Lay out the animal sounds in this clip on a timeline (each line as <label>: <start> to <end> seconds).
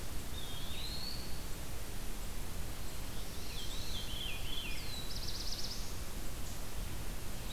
Eastern Wood-Pewee (Contopus virens): 0.2 to 1.6 seconds
Golden-crowned Kinglet (Regulus satrapa): 1.0 to 7.5 seconds
Black-throated Blue Warbler (Setophaga caerulescens): 2.6 to 4.1 seconds
Veery (Catharus fuscescens): 3.4 to 4.8 seconds
Black-throated Blue Warbler (Setophaga caerulescens): 4.6 to 6.1 seconds